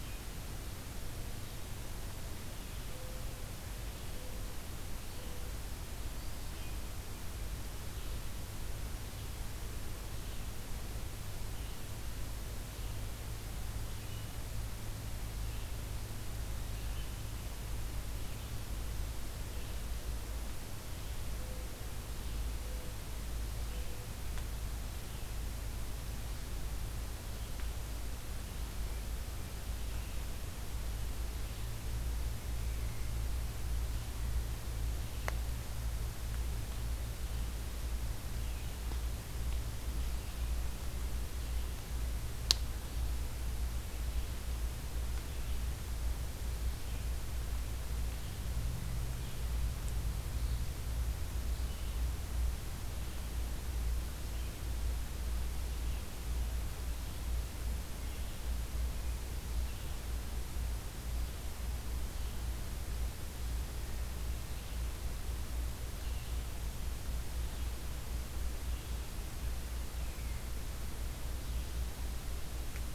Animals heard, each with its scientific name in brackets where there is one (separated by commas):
Red-eyed Vireo (Vireo olivaceus), Mourning Dove (Zenaida macroura)